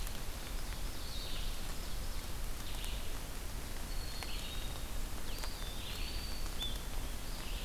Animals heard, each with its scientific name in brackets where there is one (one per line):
Ovenbird (Seiurus aurocapilla)
Red-eyed Vireo (Vireo olivaceus)
Black-capped Chickadee (Poecile atricapillus)
Eastern Wood-Pewee (Contopus virens)